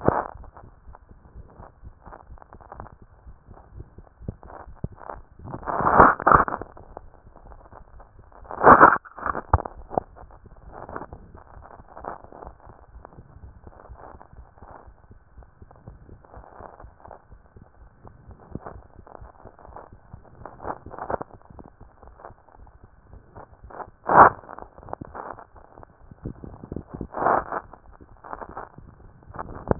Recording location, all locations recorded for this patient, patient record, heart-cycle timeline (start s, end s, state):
mitral valve (MV)
aortic valve (AV)+pulmonary valve (PV)+tricuspid valve (TV)+mitral valve (MV)
#Age: Child
#Sex: Female
#Height: 114.0 cm
#Weight: 25.8 kg
#Pregnancy status: False
#Murmur: Absent
#Murmur locations: nan
#Most audible location: nan
#Systolic murmur timing: nan
#Systolic murmur shape: nan
#Systolic murmur grading: nan
#Systolic murmur pitch: nan
#Systolic murmur quality: nan
#Diastolic murmur timing: nan
#Diastolic murmur shape: nan
#Diastolic murmur grading: nan
#Diastolic murmur pitch: nan
#Diastolic murmur quality: nan
#Outcome: Normal
#Campaign: 2014 screening campaign
0.00	1.26	unannotated
1.26	1.34	diastole
1.34	1.46	S1
1.46	1.58	systole
1.58	1.68	S2
1.68	1.84	diastole
1.84	1.94	S1
1.94	2.06	systole
2.06	2.14	S2
2.14	2.30	diastole
2.30	2.40	S1
2.40	2.52	systole
2.52	2.60	S2
2.60	2.76	diastole
2.76	2.88	S1
2.88	3.00	systole
3.00	3.08	S2
3.08	3.26	diastole
3.26	3.36	S1
3.36	3.48	systole
3.48	3.58	S2
3.58	3.74	diastole
3.74	3.86	S1
3.86	3.98	systole
3.98	4.06	S2
4.06	4.19	diastole
4.19	29.79	unannotated